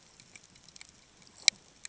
{"label": "ambient", "recorder": "HydroMoth"}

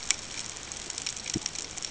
{"label": "ambient", "recorder": "HydroMoth"}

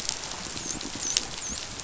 {"label": "biophony, dolphin", "recorder": "SoundTrap 500"}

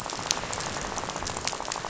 {"label": "biophony, rattle", "recorder": "SoundTrap 500"}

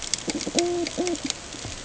{"label": "ambient", "recorder": "HydroMoth"}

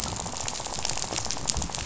{"label": "biophony, rattle", "recorder": "SoundTrap 500"}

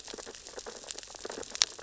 {"label": "biophony, sea urchins (Echinidae)", "recorder": "SoundTrap 600 or HydroMoth"}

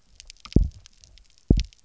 {"label": "biophony, double pulse", "recorder": "SoundTrap 300"}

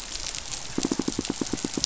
{"label": "biophony, pulse", "recorder": "SoundTrap 500"}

